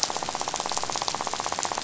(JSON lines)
{"label": "biophony, rattle", "recorder": "SoundTrap 500"}